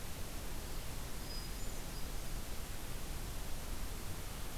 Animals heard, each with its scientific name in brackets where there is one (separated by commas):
Hermit Thrush (Catharus guttatus)